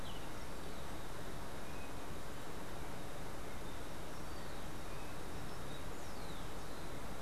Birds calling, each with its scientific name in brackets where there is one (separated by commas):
Rufous-collared Sparrow (Zonotrichia capensis)